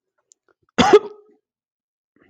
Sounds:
Cough